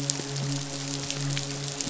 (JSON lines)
{"label": "biophony, midshipman", "recorder": "SoundTrap 500"}